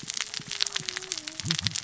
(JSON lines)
{"label": "biophony, cascading saw", "recorder": "SoundTrap 600 or HydroMoth"}